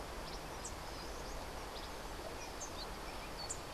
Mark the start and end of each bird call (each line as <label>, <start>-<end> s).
Cabanis's Wren (Cantorchilus modestus), 0.0-3.7 s